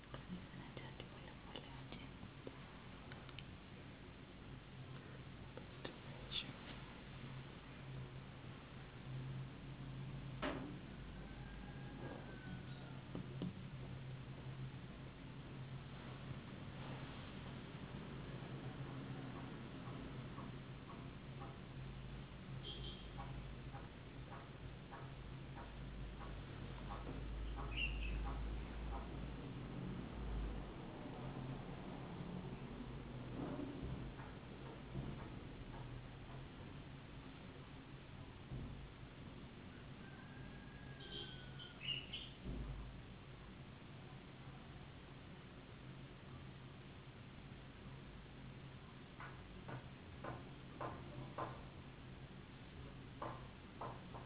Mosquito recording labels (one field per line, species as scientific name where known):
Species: no mosquito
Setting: insect culture